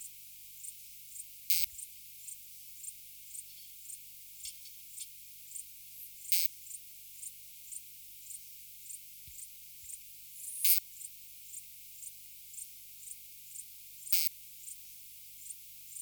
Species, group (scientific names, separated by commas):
Poecilimon thessalicus, Orthoptera